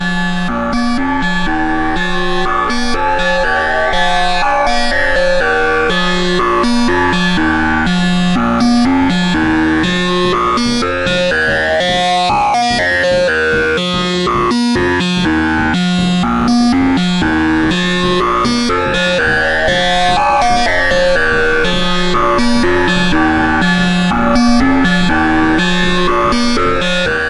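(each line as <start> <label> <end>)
0.0 Layered, resonant tones with a phased, modulated character generated by a synthesizer. 27.3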